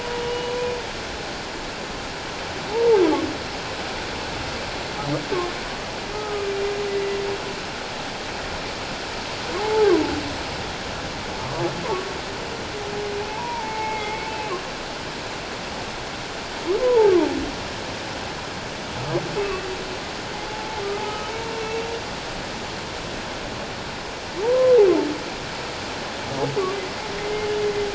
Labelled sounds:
0.0	0.5	humpback whale, 2.8 to 3.0 kHz
2.7	3.0	humpback whale, 0.81 to 0.97 kHz
6.1	7.2	humpback whale, 1.2 to 2.0 kHz
9.6	10.1	humpback whale, 0.78 to 1.2 kHz
13.3	14.3	humpback whale, 0.81 to 2.4 kHz
16.8	17.1	humpback whale, 0.81 to 1.1 kHz
19.4	21.3	humpback whale, 0.81 to 2.7 kHz
24.4	24.8	humpback whale, 0.81 to 1.1 kHz
27.2	27.5	humpback whale, 2.0 to 2.2 kHz

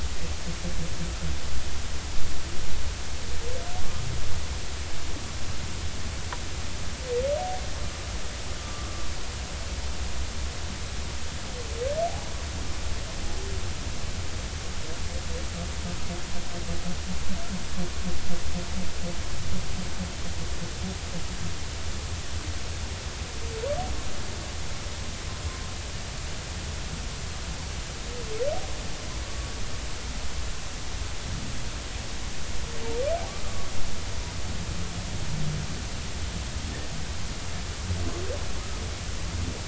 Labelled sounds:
8.6	8.9	humpback whale, 1.1 to 1.2 kHz
29.2	29.5	humpback whale, 1.1 to 1.2 kHz
33.3	33.7	humpback whale, 1.1 to 1.3 kHz

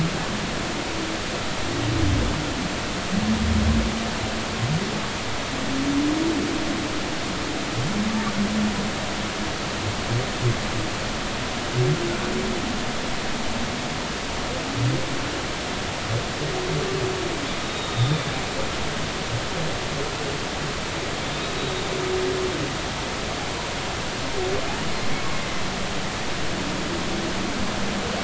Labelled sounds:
17.6	18.2	humpback whale, 3.5 to 3.8 kHz
21.6	21.9	humpback whale, 3.5 to 3.9 kHz

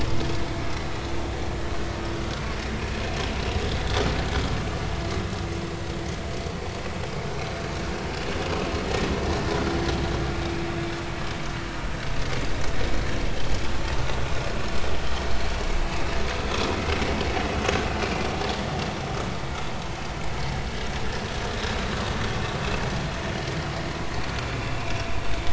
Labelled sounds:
14.6	14.9	vessel noise, 5.2 to 5.4 kHz

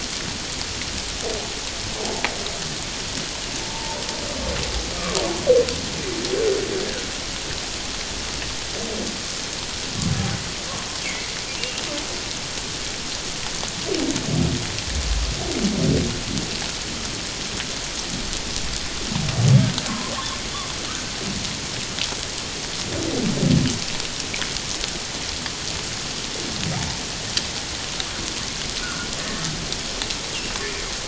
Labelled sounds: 3.6	4.0	humpback whale, 0.84 to 1.0 kHz
11.0	11.3	humpback whale, 1.9 to 2.4 kHz
28.8	29.1	humpback whale, 1.1 to 1.5 kHz

